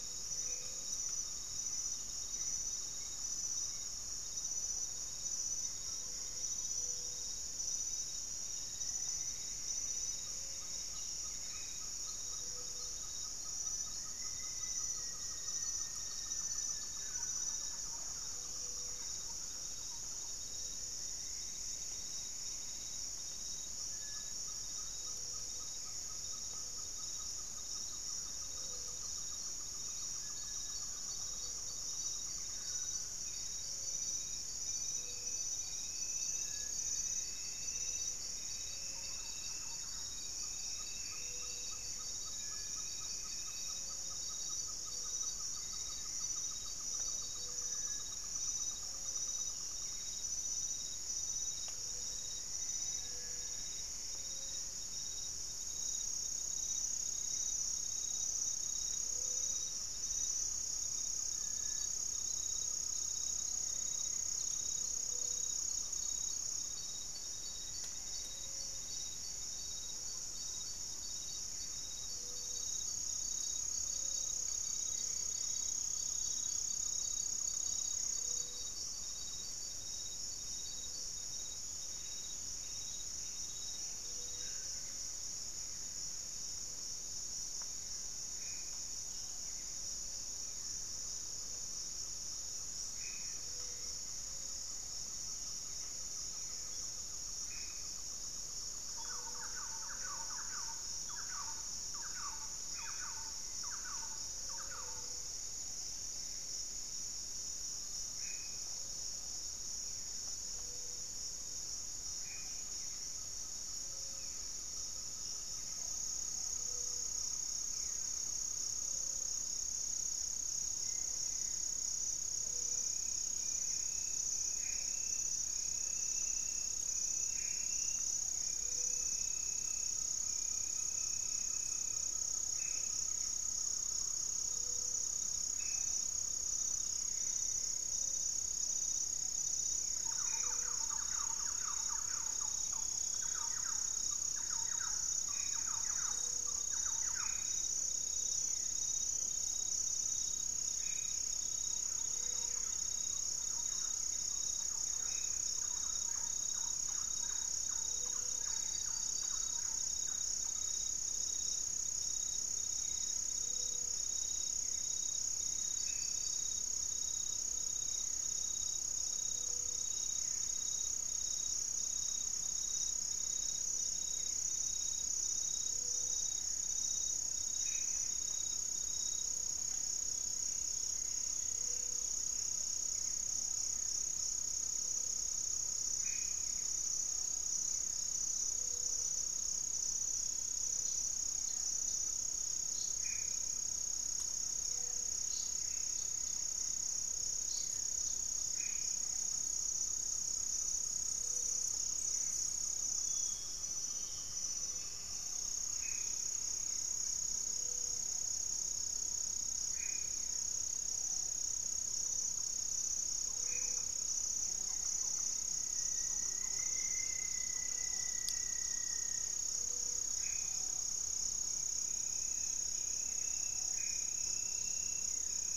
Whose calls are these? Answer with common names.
Great Antshrike, Gray-fronted Dove, Black-faced Antthrush, unidentified bird, Plumbeous Antbird, Rufous-fronted Antthrush, Thrush-like Wren, Cinereous Tinamou, Hauxwell's Thrush, Buff-breasted Wren, Buff-throated Woodcreeper, Black-spotted Bare-eye, White-flanked Antwren